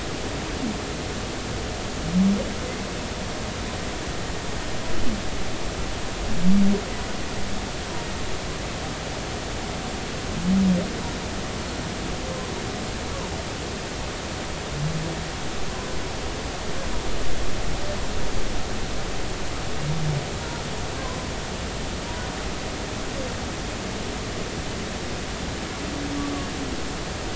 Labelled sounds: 21.0	21.3	humpback whale, 0.96 to 1.1 kHz

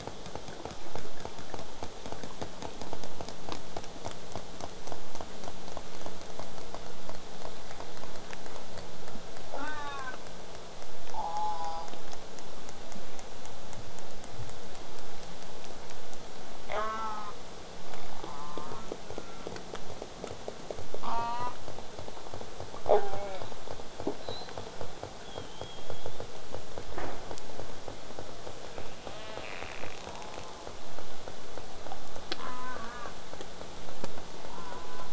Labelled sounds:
9.5	10.2	killer whale, southern resident, J pod, call S04, 0.19 to 4.4 kHz
11.1	11.9	killer whale, southern resident, J pod, call S04, 0.50 to 5.6 kHz
16.7	17.3	killer whale, southern resident, J pod, call S04, 0.27 to 6.4 kHz
18.1	18.9	killer whale, southern resident, J pod, call S04, 0.17 to 1.4 kHz
21.0	21.6	killer whale, southern resident, J pod, call S04, 0.58 to 5.4 kHz
22.9	23.5	killer whale, southern resident, J pod, call S04, 0.17 to 3.9 kHz
24.2	24.7	killer whale, southern resident, J pod, whistle, 3.6 to 4.4 kHz
25.2	26.3	killer whale, southern resident, J pod, whistle, 2.9 to 3.8 kHz
30.1	30.8	killer whale, southern resident, J pod, call S04, 0.13 to 1.6 kHz
32.4	33.1	killer whale, southern resident, J pod, call S04, 0.13 to 3.5 kHz
34.4	35.1	killer whale, southern resident, J pod, call S04, 0.39 to 1.9 kHz

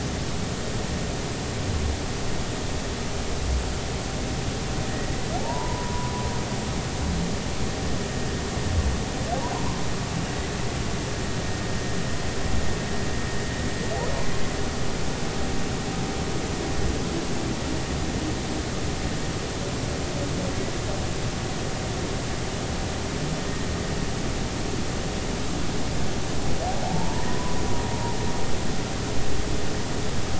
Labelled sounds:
5.4	6.1	humpback whale, 0.80 to 1.1 kHz
9.5	9.8	humpback whale, 0.90 to 1.1 kHz
26.8	27.6	humpback whale, 0.80 to 1.1 kHz

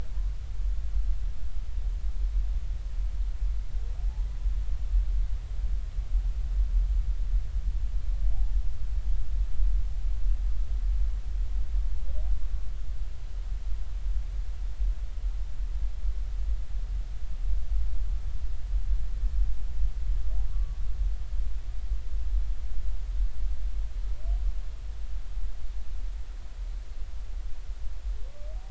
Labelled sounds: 20.5	20.8	humpback whale, 1.1 to 1.2 kHz

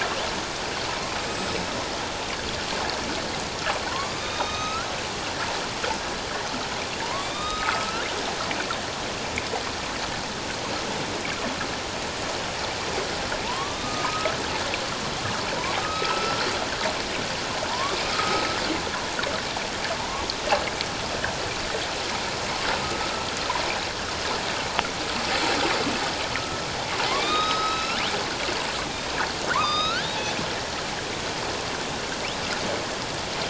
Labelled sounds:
1.2	1.8	killer whale, northern resident, A clan, AB subclan, 5.1 to 7.9 kHz
3.9	4.9	killer whale, northern resident, A clan, AB subclan, 0.91 to 6.4 kHz
7.0	8.0	killer whale, northern resident, A clan, AB subclan, 0.88 to 7.7 kHz
13.4	14.4	killer whale, northern resident, A clan, AB subclan, 0.84 to 1.3 kHz
15.8	16.5	killer whale, northern resident, A clan, AB subclan, 1.2 to 1.5 kHz
17.7	18.4	killer whale, northern resident, A clan, AB subclan, 0.88 to 1.3 kHz
20.0	20.3	killer whale, northern resident, A clan, AB subclan, 0.84 to 1.2 kHz
27.1	28.0	killer whale, northern resident, A clan, AB subclan, 1.0 to 5.2 kHz
29.5	30.1	killer whale, northern resident, A clan, AB subclan, 0.94 to 6.6 kHz

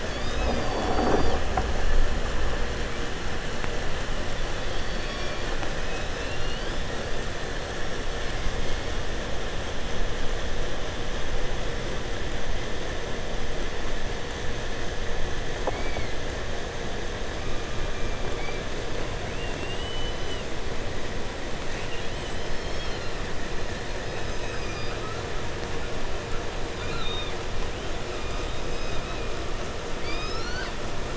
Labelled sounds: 0.0	1.5	killer whale, 1.3 to 7.7 kHz
4.3	7.3	killer whale, 1.2 to 6.6 kHz
15.6	16.3	killer whale, southern resident, 1.8 to 5.3 kHz
17.2	18.7	killer whale, southern resident, 0.76 to 5.5 kHz
19.1	20.6	killer whale, 1.4 to 8.0 kHz
21.7	25.3	killer whale, 1.1 to 8.0 kHz
26.7	27.5	killer whale, 0.85 to 4.8 kHz
27.6	29.5	killer whale, southern resident, 0.73 to 8.0 kHz
29.9	30.8	killer whale, southern resident, J pod, call S12, 0.75 to 7.5 kHz

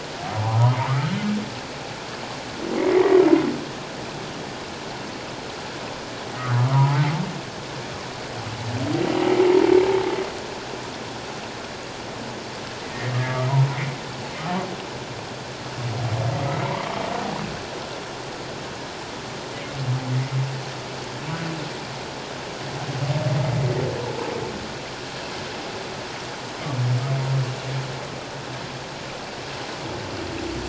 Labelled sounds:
0.4	1.1	humpback whale, 0.78 to 1.4 kHz
2.8	3.2	humpback whale, 1.8 to 2.2 kHz
6.6	7.1	humpback whale, 0.81 to 1.4 kHz
9.4	9.7	humpback whale, 0.81 to 0.97 kHz
13.3	13.5	humpback whale, 1.1 to 1.3 kHz
16.4	16.8	humpback whale, 1.9 to 2.3 kHz

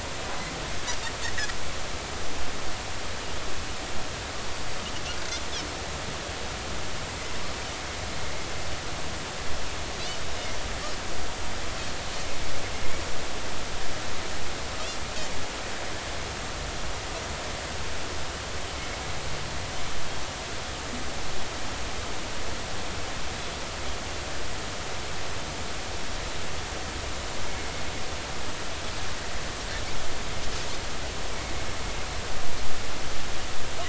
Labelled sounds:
4.5	4.7	Pacific white-sided dolphin, 4.5 to 4.7 kHz

